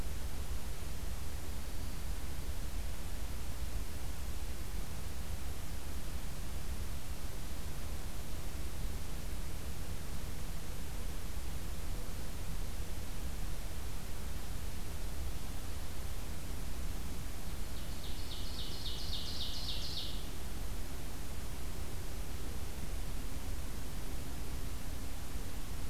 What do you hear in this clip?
Ovenbird